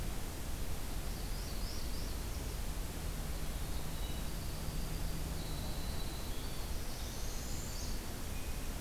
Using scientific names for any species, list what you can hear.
Setophaga americana, Troglodytes hiemalis, Sitta canadensis